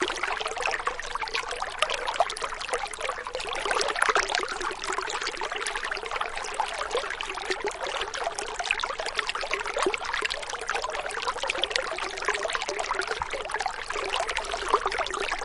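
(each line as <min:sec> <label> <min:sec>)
0:00.0 Water flows and bubbles in a stream. 0:15.4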